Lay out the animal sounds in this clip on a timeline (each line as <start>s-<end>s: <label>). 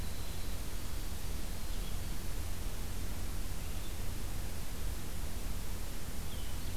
0.0s-2.3s: Winter Wren (Troglodytes hiemalis)
1.6s-6.8s: Blue-headed Vireo (Vireo solitarius)